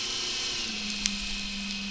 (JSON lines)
{"label": "anthrophony, boat engine", "recorder": "SoundTrap 500"}